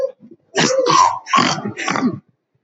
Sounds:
Sniff